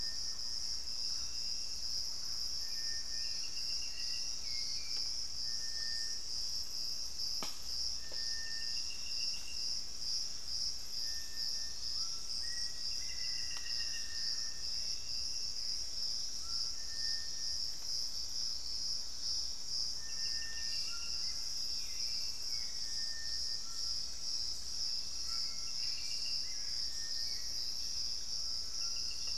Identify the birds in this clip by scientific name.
Campylorhynchus turdinus, Turdus hauxwelli, Crypturellus soui, Ramphastos tucanus, Formicarius analis, Cercomacra cinerascens, unidentified bird